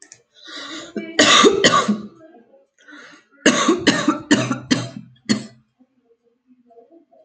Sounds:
Cough